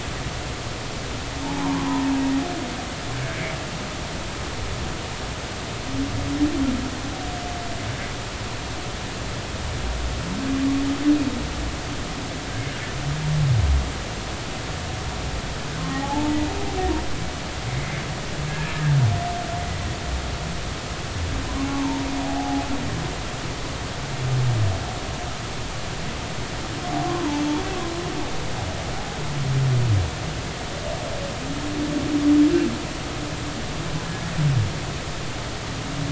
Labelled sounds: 1.4	1.9	humpback whale, 0.80 to 1.1 kHz
15.9	16.4	humpback whale, 0.80 to 0.96 kHz
17.8	18.8	humpback whale, 1.6 to 2.3 kHz
21.6	22.6	humpback whale, 0.80 to 1.2 kHz
27.0	27.4	humpback whale, 0.83 to 1.2 kHz

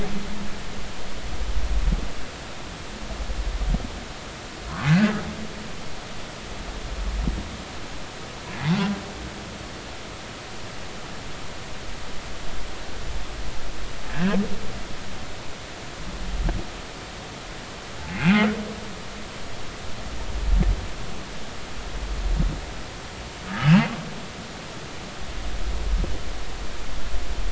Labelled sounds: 4.9	5.2	humpback whale, 1.4 to 1.8 kHz
14.1	14.4	humpback whale, 1.5 to 1.9 kHz
18.1	18.4	humpback whale, 2.4 to 2.8 kHz
23.7	23.9	humpback whale, 2.5 to 2.8 kHz

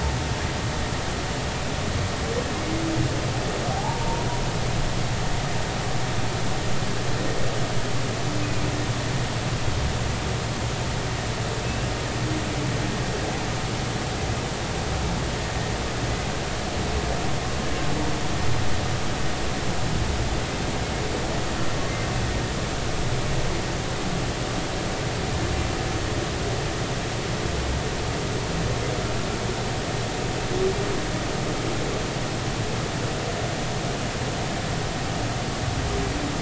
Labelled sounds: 3.7	4.3	humpback whale, 0.80 to 0.99 kHz
11.6	11.9	humpback whale, 2.5 to 2.8 kHz

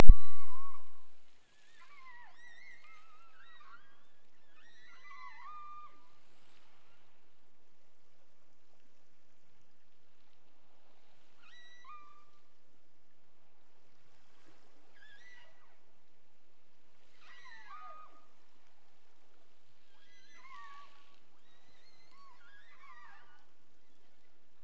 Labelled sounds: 0.1	1.1	killer whale, offshore, 0.91 to 8.0 kHz
1.5	4.2	killer whale, offshore, 0.57 to 8.0 kHz
4.5	6.0	killer whale, offshore, 0.66 to 8.0 kHz
11.3	12.4	killer whale, offshore, 0.75 to 8.0 kHz
14.9	15.7	killer whale, offshore, 0.41 to 6.2 kHz
17.2	18.3	killer whale, offshore, 0.50 to 8.0 kHz
19.8	23.5	killer whale, offshore, 0.59 to 8.0 kHz

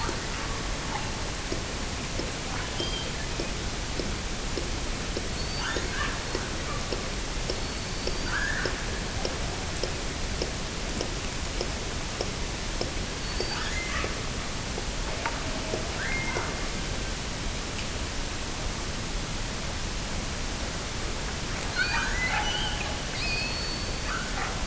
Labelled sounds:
2.6	3.6	killer whale, offshore, 1.4 to 4.9 kHz
5.3	6.6	killer whale, offshore, 0.64 to 4.7 kHz
7.5	8.8	killer whale, offshore, 1.1 to 4.9 kHz
13.2	14.2	killer whale, offshore, 0.98 to 4.8 kHz
16.0	16.7	killer whale, offshore, 0.57 to 2.5 kHz
21.5	24.6	killer whale, offshore, 0.55 to 7.3 kHz

